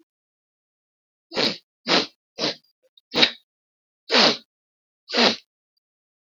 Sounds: Sniff